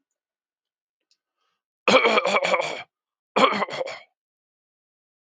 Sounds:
Throat clearing